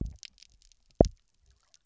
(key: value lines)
label: biophony, double pulse
recorder: SoundTrap 300